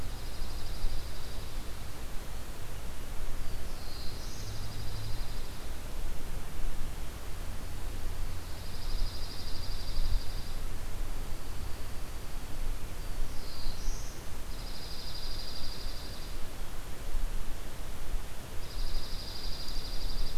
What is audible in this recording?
Dark-eyed Junco, Black-throated Blue Warbler